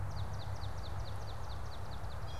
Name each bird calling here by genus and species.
Melospiza georgiana